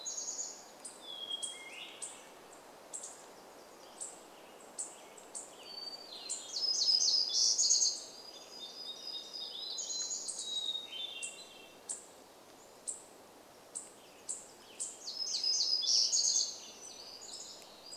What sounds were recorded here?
Hermit Thrush song, warbler song, unidentified bird chip note, Western Tanager song, Black-headed Grosbeak song